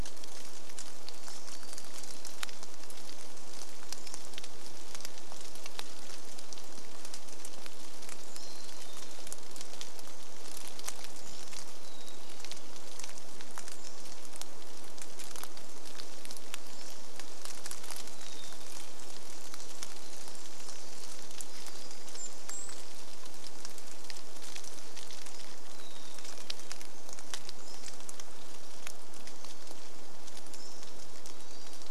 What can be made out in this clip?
Pacific-slope Flycatcher call, Pacific-slope Flycatcher song, Hermit Thrush song, rain, Pacific Wren song, Golden-crowned Kinglet call, Varied Thrush song